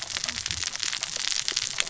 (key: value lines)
label: biophony, cascading saw
recorder: SoundTrap 600 or HydroMoth